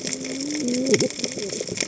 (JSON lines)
{"label": "biophony, cascading saw", "recorder": "HydroMoth"}